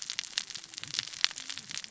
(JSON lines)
{"label": "biophony, cascading saw", "recorder": "SoundTrap 600 or HydroMoth"}